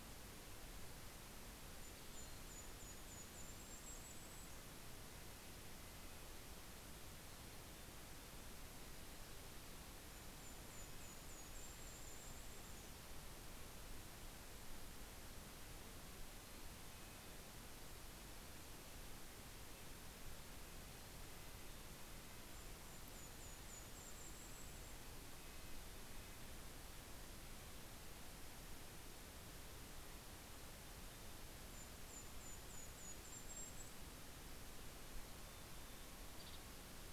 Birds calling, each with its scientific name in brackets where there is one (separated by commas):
Red-breasted Nuthatch (Sitta canadensis), Golden-crowned Kinglet (Regulus satrapa), Mountain Chickadee (Poecile gambeli), White-headed Woodpecker (Dryobates albolarvatus)